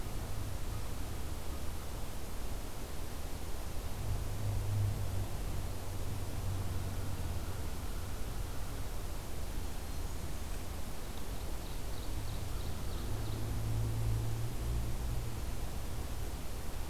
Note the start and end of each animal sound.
[9.28, 10.63] Blackburnian Warbler (Setophaga fusca)
[10.94, 13.59] Ovenbird (Seiurus aurocapilla)

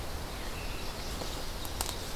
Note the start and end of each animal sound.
[0.14, 2.15] Ovenbird (Seiurus aurocapilla)
[0.28, 0.97] Veery (Catharus fuscescens)
[1.14, 2.15] Chestnut-sided Warbler (Setophaga pensylvanica)

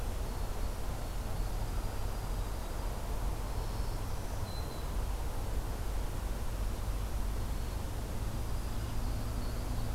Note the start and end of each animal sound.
[1.54, 3.12] Dark-eyed Junco (Junco hyemalis)
[3.35, 5.17] Black-throated Green Warbler (Setophaga virens)
[8.21, 9.95] Dark-eyed Junco (Junco hyemalis)

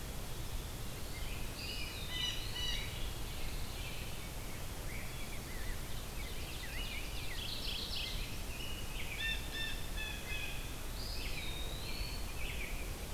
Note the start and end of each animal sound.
[1.02, 2.88] American Robin (Turdus migratorius)
[1.32, 2.97] Eastern Wood-Pewee (Contopus virens)
[2.00, 2.96] Blue Jay (Cyanocitta cristata)
[2.72, 4.10] Pine Warbler (Setophaga pinus)
[4.80, 9.35] Rose-breasted Grosbeak (Pheucticus ludovicianus)
[5.69, 7.62] Ovenbird (Seiurus aurocapilla)
[7.20, 8.52] Mourning Warbler (Geothlypis philadelphia)
[9.07, 10.77] Blue Jay (Cyanocitta cristata)
[10.81, 12.40] Eastern Wood-Pewee (Contopus virens)
[11.04, 13.05] American Robin (Turdus migratorius)

